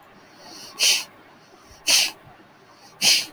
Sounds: Sniff